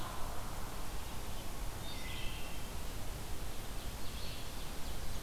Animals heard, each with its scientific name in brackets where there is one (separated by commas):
Ovenbird (Seiurus aurocapilla), Red-eyed Vireo (Vireo olivaceus), Blackburnian Warbler (Setophaga fusca), Wood Thrush (Hylocichla mustelina)